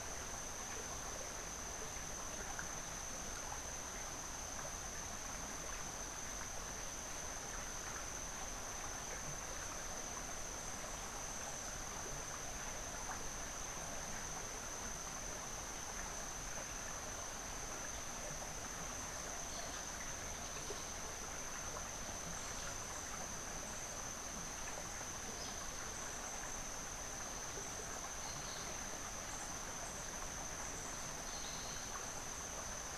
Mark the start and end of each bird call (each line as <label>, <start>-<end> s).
Crimson-fronted Parakeet (Psittacara finschi), 28.3-28.9 s